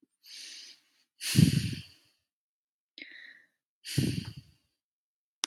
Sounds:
Sigh